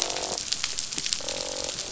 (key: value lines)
label: biophony, croak
recorder: SoundTrap 500